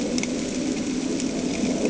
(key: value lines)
label: anthrophony, boat engine
recorder: HydroMoth